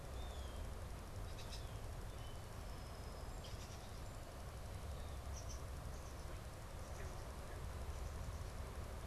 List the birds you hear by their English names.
Blue Jay, Red-winged Blackbird, Song Sparrow